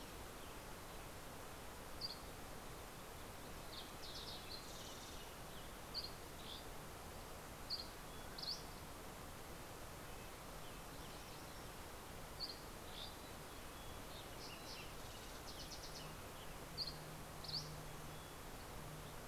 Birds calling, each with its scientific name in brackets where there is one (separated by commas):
Dusky Flycatcher (Empidonax oberholseri), MacGillivray's Warbler (Geothlypis tolmiei), Fox Sparrow (Passerella iliaca), Red-breasted Nuthatch (Sitta canadensis), Mountain Chickadee (Poecile gambeli), Western Tanager (Piranga ludoviciana)